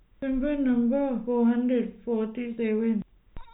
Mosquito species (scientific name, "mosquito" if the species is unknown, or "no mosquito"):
no mosquito